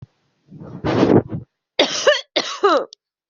{"expert_labels": [{"quality": "good", "cough_type": "dry", "dyspnea": false, "wheezing": false, "stridor": false, "choking": false, "congestion": false, "nothing": true, "diagnosis": "upper respiratory tract infection", "severity": "mild"}], "gender": "female", "respiratory_condition": false, "fever_muscle_pain": false, "status": "healthy"}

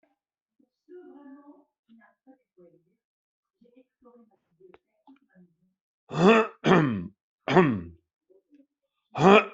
{"expert_labels": [{"quality": "no cough present", "cough_type": "unknown", "dyspnea": false, "wheezing": false, "stridor": false, "choking": false, "congestion": false, "nothing": true, "diagnosis": "healthy cough", "severity": "pseudocough/healthy cough"}], "age": 79, "gender": "male", "respiratory_condition": false, "fever_muscle_pain": false, "status": "healthy"}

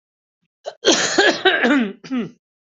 {"expert_labels": [{"quality": "good", "cough_type": "dry", "dyspnea": false, "wheezing": false, "stridor": false, "choking": false, "congestion": false, "nothing": true, "diagnosis": "healthy cough", "severity": "pseudocough/healthy cough"}], "age": 42, "gender": "male", "respiratory_condition": false, "fever_muscle_pain": true, "status": "COVID-19"}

